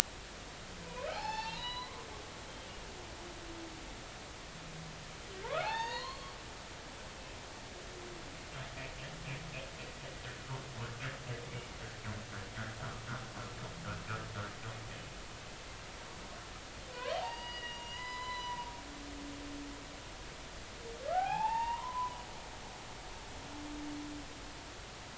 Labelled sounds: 0.8	2.1	humpback whale, 0.80 to 5.4 kHz
5.4	6.4	humpback whale, 0.80 to 6.7 kHz
7.0	7.3	humpback whale, 3.1 to 3.3 kHz
16.9	18.7	humpback whale, 0.80 to 5.0 kHz
21.1	22.2	humpback whale, 0.80 to 4.7 kHz

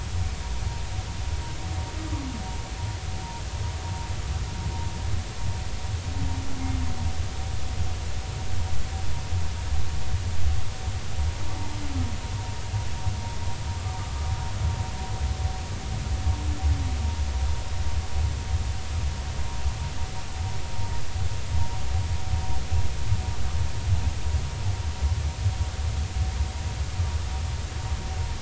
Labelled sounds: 2.0	2.3	humpback whale, 1.1 to 1.3 kHz

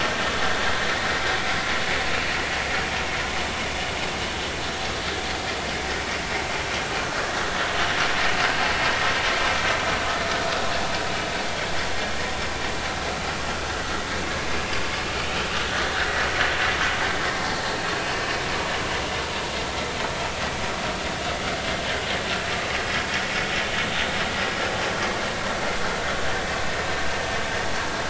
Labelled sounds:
0.6	0.9	vessel noise, 1.6 to 1.9 kHz

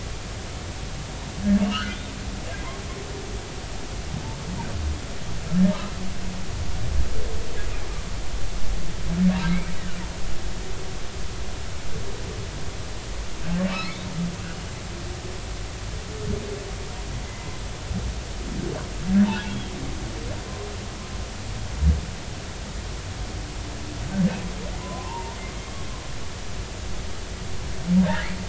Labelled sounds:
1.6	2.0	humpback whale, 1.2 to 3.2 kHz
13.7	14.0	humpback whale, 1.1 to 2.9 kHz
14.5	14.7	humpback whale, 2.8 to 3.0 kHz
24.8	25.4	humpback whale, 0.83 to 1.1 kHz
28.1	28.4	humpback whale, 1.6 to 2.4 kHz

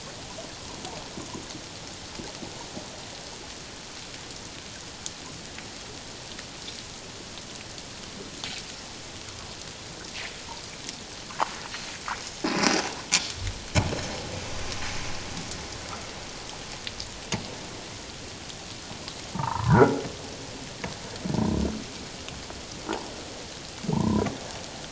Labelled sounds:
19.3	19.9	humpback whale, 0.81 to 1.8 kHz
23.9	24.3	humpback whale, 0.78 to 1.1 kHz

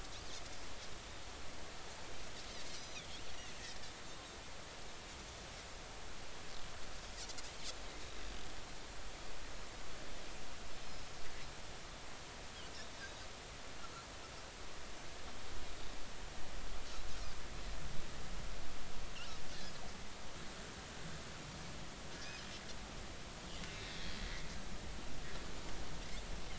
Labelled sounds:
2.8	3.1	Pacific white-sided dolphin, 3.2 to 6.0 kHz
13.0	13.3	Pacific white-sided dolphin, 4.6 to 5.0 kHz
22.2	22.5	Pacific white-sided dolphin, 4.7 to 5.2 kHz
23.9	24.2	Pacific white-sided dolphin, 3.2 to 3.4 kHz

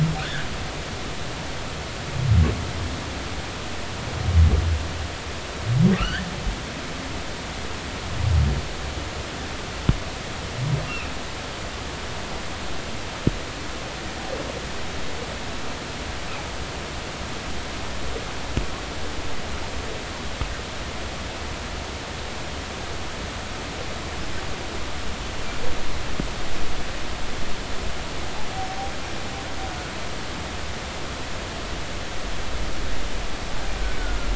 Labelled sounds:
0.2	0.5	humpback whale, 1.4 to 1.9 kHz
6.0	6.3	humpback whale, 1.1 to 3.3 kHz
10.8	11.1	humpback whale, 2.4 to 2.9 kHz

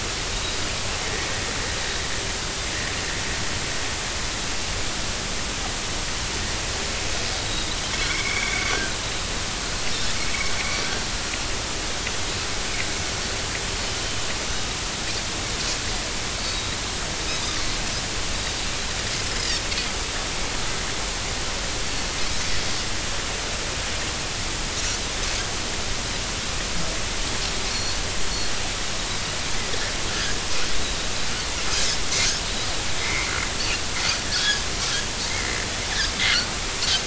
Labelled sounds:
1.3	1.6	Pacific white-sided dolphin, 3.7 to 3.9 kHz
7.4	7.8	Pacific white-sided dolphin, 3.6 to 4.0 kHz
8.1	8.7	Pacific white-sided dolphin, 2.0 to 2.4 kHz
10.6	10.8	Pacific white-sided dolphin, 2.1 to 2.4 kHz
14.0	14.3	Pacific white-sided dolphin, 2.9 to 3.1 kHz
16.5	16.8	Pacific white-sided dolphin, 3.6 to 3.9 kHz
19.3	19.6	Pacific white-sided dolphin, 4.7 to 5.2 kHz
27.7	28.0	Pacific white-sided dolphin, 4.2 to 5.9 kHz
33.0	33.3	Pacific white-sided dolphin, 2.0 to 2.4 kHz
34.3	34.6	Pacific white-sided dolphin, 1.4 to 1.8 kHz
35.3	35.6	Pacific white-sided dolphin, 1.9 to 2.2 kHz

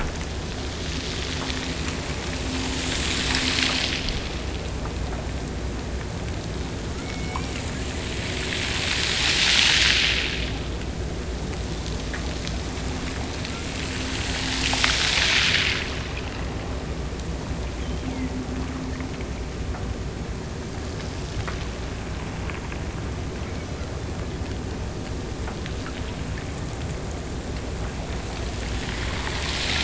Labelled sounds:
6.9	7.9	killer whale, Bigg's (transient), Gulf of Alaska transient, 1.9 to 5.9 kHz
17.8	18.4	killer whale, Bigg's (transient), Gulf of Alaska transient, 1.8 to 3.3 kHz
23.4	24.3	killer whale, Bigg's (transient), Gulf of Alaska transient, 2.4 to 6.1 kHz

